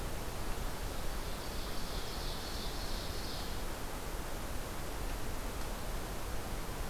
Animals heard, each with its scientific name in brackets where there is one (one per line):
Ovenbird (Seiurus aurocapilla)